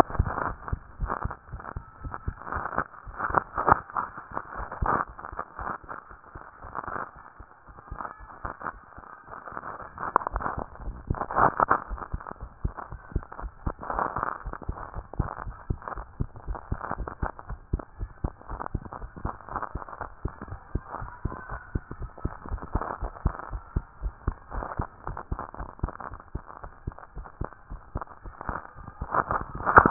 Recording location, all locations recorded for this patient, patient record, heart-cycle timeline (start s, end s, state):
tricuspid valve (TV)
aortic valve (AV)+pulmonary valve (PV)+tricuspid valve (TV)+mitral valve (MV)
#Age: Child
#Sex: Female
#Height: 130.0 cm
#Weight: 22.9 kg
#Pregnancy status: False
#Murmur: Absent
#Murmur locations: nan
#Most audible location: nan
#Systolic murmur timing: nan
#Systolic murmur shape: nan
#Systolic murmur grading: nan
#Systolic murmur pitch: nan
#Systolic murmur quality: nan
#Diastolic murmur timing: nan
#Diastolic murmur shape: nan
#Diastolic murmur grading: nan
#Diastolic murmur pitch: nan
#Diastolic murmur quality: nan
#Outcome: Normal
#Campaign: 2014 screening campaign
0.00	14.86	unannotated
14.86	14.96	diastole
14.96	15.06	S1
15.06	15.18	systole
15.18	15.28	S2
15.28	15.46	diastole
15.46	15.56	S1
15.56	15.68	systole
15.68	15.78	S2
15.78	15.96	diastole
15.96	16.06	S1
16.06	16.18	systole
16.18	16.28	S2
16.28	16.48	diastole
16.48	16.58	S1
16.58	16.70	systole
16.70	16.80	S2
16.80	16.98	diastole
16.98	17.10	S1
17.10	17.22	systole
17.22	17.30	S2
17.30	17.48	diastole
17.48	17.60	S1
17.60	17.72	systole
17.72	17.82	S2
17.82	18.00	diastole
18.00	18.10	S1
18.10	18.22	systole
18.22	18.32	S2
18.32	18.50	diastole
18.50	18.60	S1
18.60	18.72	systole
18.72	18.82	S2
18.82	19.00	diastole
19.00	19.10	S1
19.10	19.24	systole
19.24	19.34	S2
19.34	19.52	diastole
19.52	19.62	S1
19.62	19.74	systole
19.74	19.83	S2
19.83	20.00	diastole
20.00	20.10	S1
20.10	20.24	systole
20.24	20.32	S2
20.32	20.48	diastole
20.48	20.60	S1
20.60	20.74	systole
20.74	20.82	S2
20.82	21.00	diastole
21.00	21.12	S1
21.12	21.24	systole
21.24	21.34	S2
21.34	21.50	diastole
21.50	21.62	S1
21.62	21.74	systole
21.74	21.82	S2
21.82	22.00	diastole
22.00	22.10	S1
22.10	22.24	systole
22.24	22.32	S2
22.32	22.50	diastole
22.50	29.90	unannotated